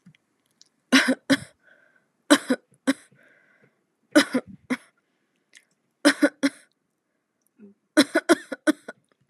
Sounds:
Cough